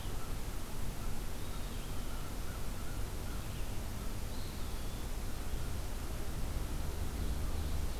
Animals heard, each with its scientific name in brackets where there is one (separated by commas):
Eastern Wood-Pewee (Contopus virens), American Crow (Corvus brachyrhynchos)